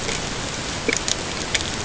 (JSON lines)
{"label": "ambient", "recorder": "HydroMoth"}